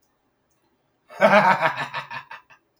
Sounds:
Laughter